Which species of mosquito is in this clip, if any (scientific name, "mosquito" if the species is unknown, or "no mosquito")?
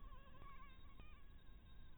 Anopheles harrisoni